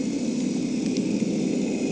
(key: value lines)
label: anthrophony, boat engine
recorder: HydroMoth